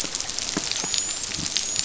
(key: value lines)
label: biophony, dolphin
recorder: SoundTrap 500